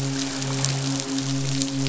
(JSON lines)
{"label": "biophony, midshipman", "recorder": "SoundTrap 500"}